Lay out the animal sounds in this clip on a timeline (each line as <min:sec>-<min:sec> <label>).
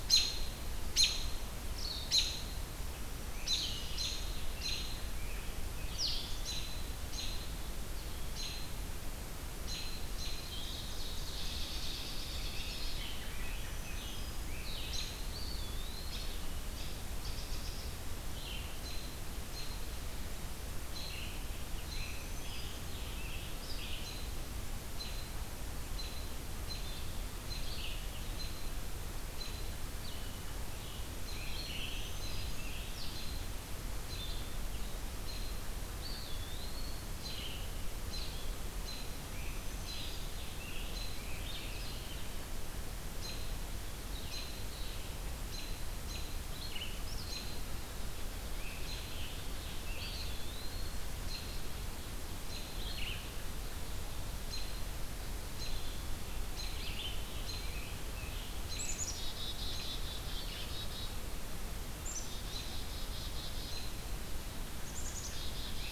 0:00.0-0:05.0 American Robin (Turdus migratorius)
0:03.0-0:06.6 Scarlet Tanager (Piranga olivacea)
0:06.3-0:10.4 American Robin (Turdus migratorius)
0:10.3-0:11.7 Ovenbird (Seiurus aurocapilla)
0:11.0-0:13.2 American Robin (Turdus migratorius)
0:11.6-0:14.8 Scarlet Tanager (Piranga olivacea)
0:13.1-0:14.6 Black-throated Green Warbler (Setophaga virens)
0:14.4-0:15.2 American Robin (Turdus migratorius)
0:15.2-0:16.5 Eastern Wood-Pewee (Contopus virens)
0:16.5-0:34.4 American Robin (Turdus migratorius)
0:21.6-0:24.0 Scarlet Tanager (Piranga olivacea)
0:21.8-0:23.0 Black-throated Green Warbler (Setophaga virens)
0:23.4-0:34.6 Red-eyed Vireo (Vireo olivaceus)
0:31.3-0:32.9 Black-throated Green Warbler (Setophaga virens)
0:35.2-0:47.5 American Robin (Turdus migratorius)
0:35.7-0:37.4 Eastern Wood-Pewee (Contopus virens)
0:38.6-0:42.0 Scarlet Tanager (Piranga olivacea)
0:39.1-0:40.4 Black-throated Green Warbler (Setophaga virens)
0:48.4-0:50.3 Scarlet Tanager (Piranga olivacea)
0:48.7-0:58.8 American Robin (Turdus migratorius)
0:49.7-0:51.0 Eastern Wood-Pewee (Contopus virens)
0:56.1-0:59.1 Scarlet Tanager (Piranga olivacea)
0:58.6-1:01.1 Black-capped Chickadee (Poecile atricapillus)
1:00.3-1:05.9 Red-eyed Vireo (Vireo olivaceus)
1:01.9-1:03.9 Black-capped Chickadee (Poecile atricapillus)
1:03.6-1:03.9 American Robin (Turdus migratorius)
1:04.9-1:05.9 Black-capped Chickadee (Poecile atricapillus)